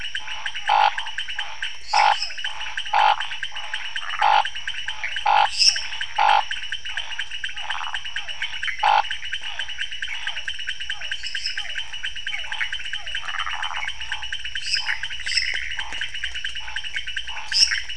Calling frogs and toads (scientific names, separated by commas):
Scinax fuscovarius, Physalaemus cuvieri, Leptodactylus podicipinus, Dendropsophus minutus, Phyllomedusa sauvagii, Pithecopus azureus